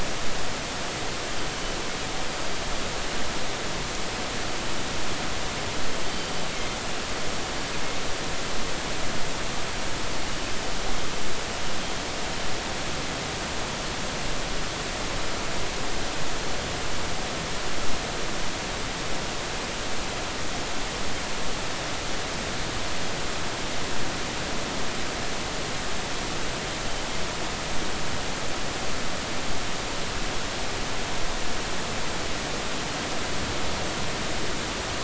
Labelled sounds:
6.1	6.3	killer whale, northern resident, G clan, 4.6 to 4.7 kHz

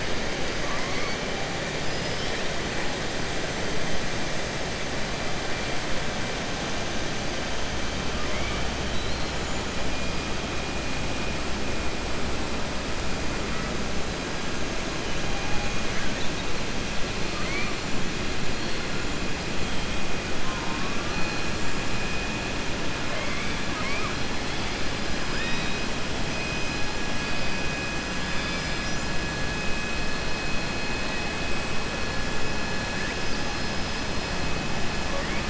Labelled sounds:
0.6	1.1	killer whale, southern resident, 0.99 to 2.3 kHz
8.2	9.3	killer whale, southern resident, 1.0 to 4.3 kHz
17.3	17.7	killer whale, southern resident, 1.1 to 4.4 kHz

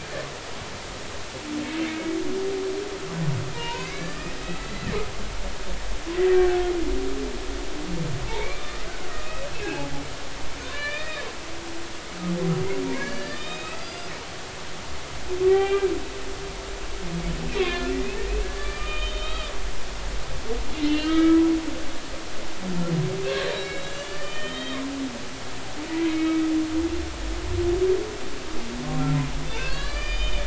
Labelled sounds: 1.8	2.2	humpback whale, 2.1 to 2.3 kHz
3.5	4.9	humpback whale, 0.86 to 2.3 kHz
8.3	9.9	humpback whale, 1.1 to 2.8 kHz
10.7	11.2	humpback whale, 1.1 to 3.8 kHz
13.0	14.1	humpback whale, 1.6 to 5.1 kHz
15.4	15.9	humpback whale, 0.80 to 3.2 kHz
17.6	18.0	humpback whale, 0.99 to 3.6 kHz
18.6	19.5	humpback whale, 1.1 to 3.9 kHz
20.8	21.4	humpback whale, 1.2 to 3.3 kHz
23.5	24.8	humpback whale, 1.1 to 4.8 kHz
25.9	26.4	humpback whale, 1.9 to 2.3 kHz
29.4	30.4	humpback whale, 1.0 to 5.0 kHz

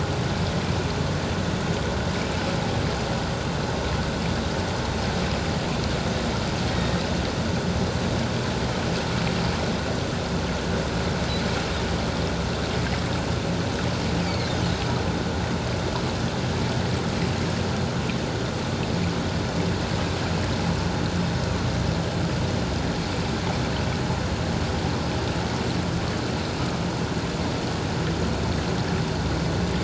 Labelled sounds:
6.7	7.0	humpback whale, 1.8 to 1.9 kHz
14.2	14.5	humpback whale, 2.0 to 4.7 kHz

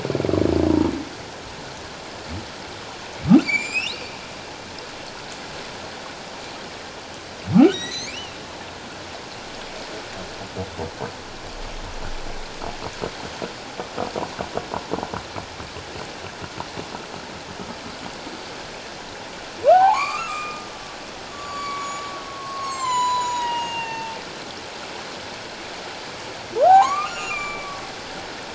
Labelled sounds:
3.4	4.0	humpback whale, 2.1 to 7.6 kHz
7.7	8.4	humpback whale, 1.8 to 8.0 kHz
19.7	24.2	humpback whale, 0.78 to 7.7 kHz
26.6	27.7	humpback whale, 0.78 to 7.2 kHz

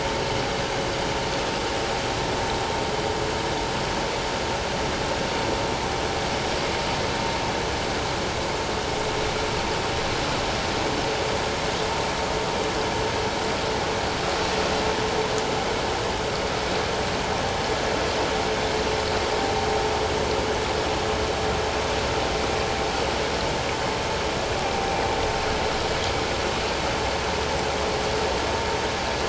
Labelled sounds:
24.8	25.0	vessel noise, 0.78 to 0.84 kHz

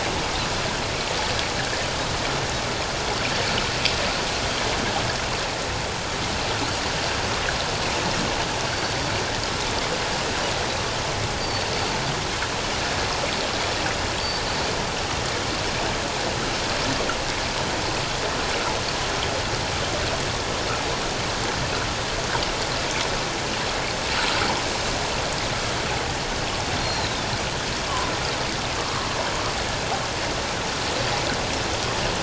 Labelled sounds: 11.4	11.7	Pacific white-sided dolphin, 4.4 to 4.7 kHz
26.8	27.3	Pacific white-sided dolphin, 3.4 to 4.3 kHz

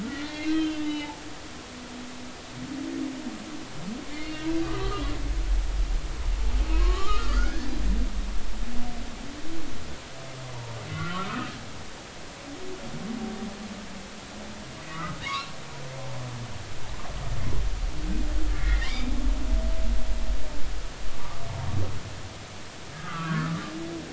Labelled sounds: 0.0	1.2	humpback whale, 0.80 to 4.2 kHz
4.1	5.0	humpback whale, 1.1 to 4.4 kHz
6.7	7.6	humpback whale, 0.93 to 1.5 kHz
10.9	11.5	humpback whale, 1.2 to 2.1 kHz
14.8	15.5	humpback whale, 0.93 to 2.0 kHz
18.5	19.1	humpback whale, 1.7 to 3.8 kHz
23.0	23.6	humpback whale, 1.1 to 1.7 kHz

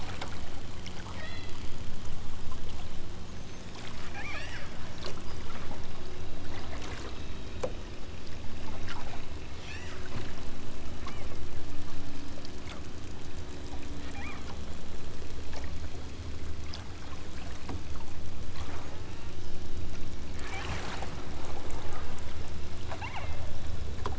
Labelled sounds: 1.1	1.6	killer whale, southern Alaska resident, 1.4 to 5.1 kHz
4.1	4.7	killer whale, southern Alaska resident, 0.86 to 8.0 kHz
9.5	10.0	killer whale, southern Alaska resident, 0.99 to 8.0 kHz
11.1	11.4	killer whale, southern Alaska resident, 1.5 to 3.3 kHz
14.1	14.5	killer whale, southern Alaska resident, 0.60 to 2.9 kHz
18.9	19.4	killer whale, southern Alaska resident, 0.64 to 2.9 kHz
20.3	20.8	killer whale, southern Alaska resident, 0.64 to 2.7 kHz
22.8	23.4	killer whale, southern Alaska resident, 0.47 to 3.6 kHz

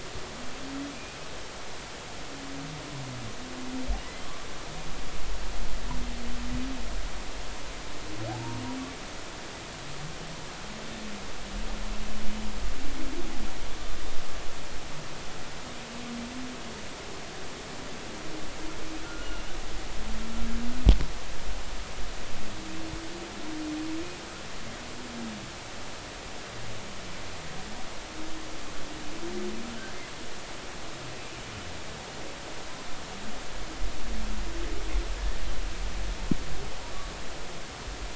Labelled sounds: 0.9	1.2	humpback whale, 2.3 to 2.5 kHz
19.0	19.4	humpback whale, 1.3 to 2.9 kHz
29.7	30.0	humpback whale, 1.3 to 1.7 kHz

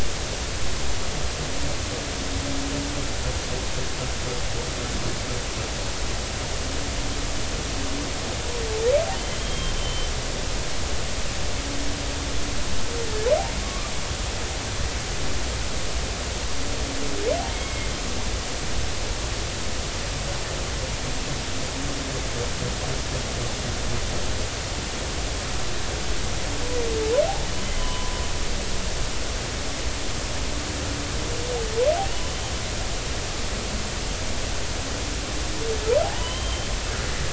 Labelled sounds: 9.1	10.1	humpback whale, 2.9 to 3.3 kHz
13.6	13.9	humpback whale, 1.1 to 1.3 kHz
17.5	17.9	humpback whale, 2.0 to 2.2 kHz
27.6	28.1	humpback whale, 0.93 to 3.1 kHz
36.0	36.7	humpback whale, 0.80 to 3.2 kHz

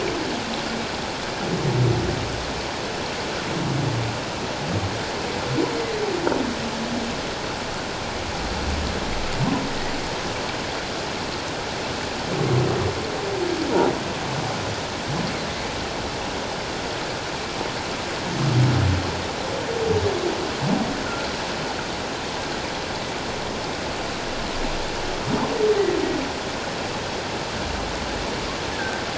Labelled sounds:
28.7	29.0	humpback whale, 1.4 to 1.8 kHz

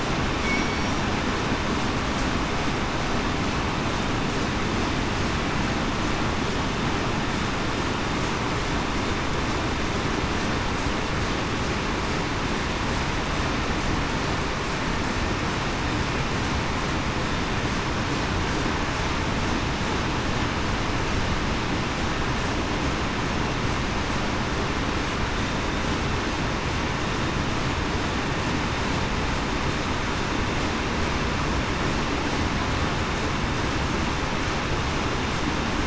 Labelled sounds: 0.4	0.8	killer whale, southern resident, 2.2 to 2.3 kHz

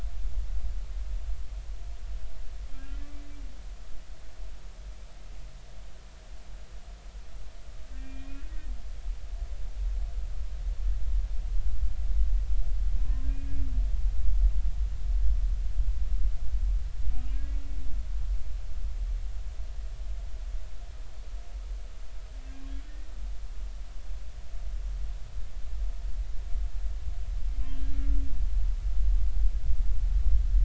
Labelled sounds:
7.9	8.4	humpback whale, 1.8 to 2.6 kHz
13.0	13.3	humpback whale, 0.99 to 1.1 kHz
17.3	17.6	humpback whale, 1.6 to 1.7 kHz

